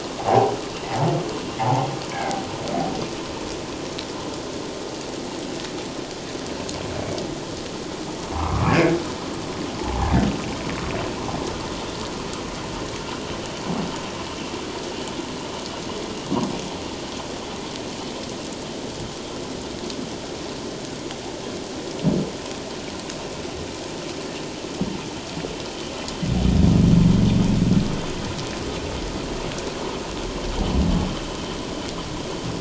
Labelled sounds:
1.6	2.4	humpback whale, 0.78 to 2.3 kHz
8.5	8.8	humpback whale, 1.0 to 1.4 kHz
9.8	10.1	humpback whale, 0.78 to 1.2 kHz

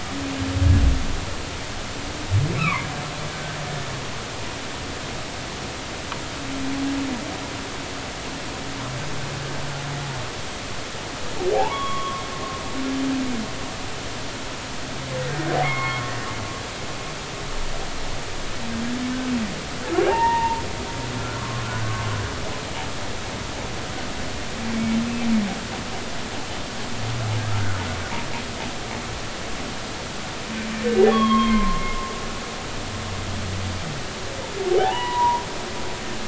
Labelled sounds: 2.6	2.9	humpback whale, 0.93 to 2.7 kHz
11.5	12.2	humpback whale, 0.80 to 3.4 kHz
15.6	16.0	humpback whale, 1.0 to 2.3 kHz
20.1	20.6	humpback whale, 0.80 to 1.9 kHz
21.3	22.1	humpback whale, 1.0 to 1.2 kHz
27.5	27.8	humpback whale, 1.2 to 1.6 kHz
31.1	31.8	humpback whale, 0.96 to 3.4 kHz
34.8	35.4	humpback whale, 0.80 to 3.0 kHz

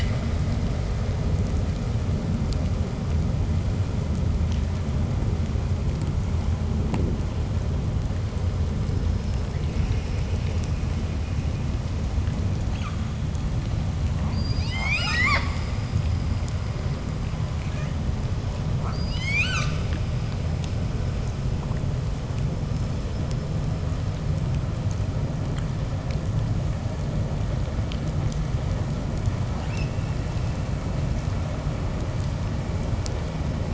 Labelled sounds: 12.6	13.0	killer whale, 0.75 to 8.0 kHz
14.1	16.3	killer whale, 0.26 to 8.0 kHz
17.6	18.0	killer whale, 0.15 to 8.0 kHz
18.6	20.0	killer whale, 0.29 to 8.0 kHz
29.6	30.0	killer whale, 1.7 to 8.0 kHz

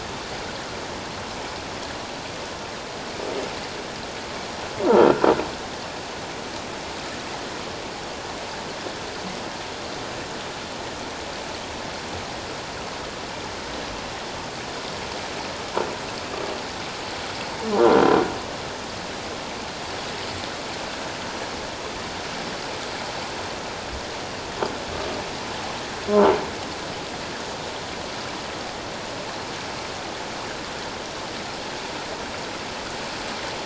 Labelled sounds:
26.1	26.4	croaking sound likely from a nearby submerged object, 0.84 to 1.1 kHz

